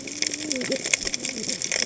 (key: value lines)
label: biophony, cascading saw
recorder: HydroMoth